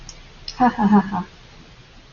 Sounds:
Laughter